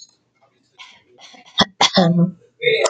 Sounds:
Throat clearing